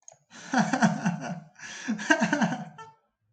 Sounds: Laughter